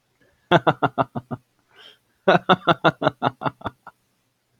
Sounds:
Laughter